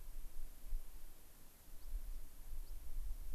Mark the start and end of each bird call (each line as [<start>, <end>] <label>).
[1.70, 1.90] American Pipit (Anthus rubescens)
[2.60, 2.80] American Pipit (Anthus rubescens)